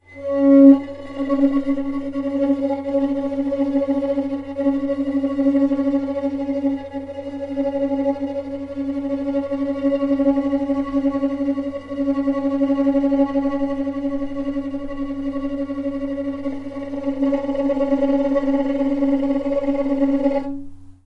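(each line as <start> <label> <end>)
0.0 A long, single note is played on a violin. 21.1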